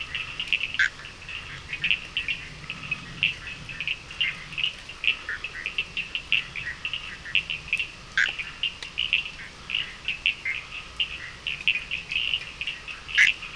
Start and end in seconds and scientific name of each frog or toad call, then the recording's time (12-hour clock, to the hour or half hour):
0.0	13.5	Sphaenorhynchus surdus
0.5	1.1	Boana bischoffi
5.0	5.8	Boana bischoffi
7.9	8.5	Boana bischoffi
10.3	11.4	Boana bischoffi
12.9	13.5	Boana bischoffi
8:30pm